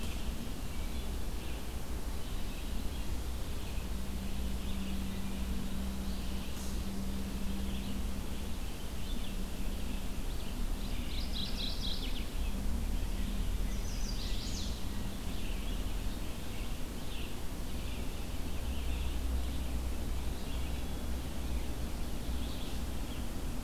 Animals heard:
Red-eyed Vireo (Vireo olivaceus)
Mourning Warbler (Geothlypis philadelphia)
Chestnut-sided Warbler (Setophaga pensylvanica)

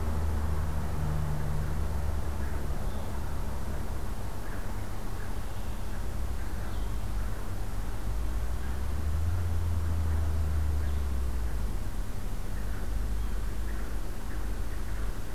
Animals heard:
Red-winged Blackbird (Agelaius phoeniceus)
Blue-headed Vireo (Vireo solitarius)

